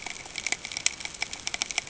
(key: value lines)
label: ambient
recorder: HydroMoth